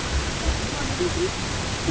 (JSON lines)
{"label": "ambient", "recorder": "HydroMoth"}